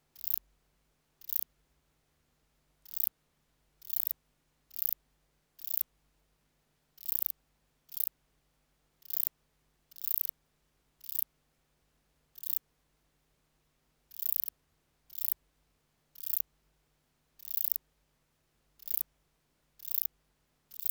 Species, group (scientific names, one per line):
Metrioptera saussuriana
Orthoptera